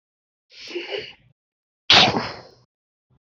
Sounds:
Sneeze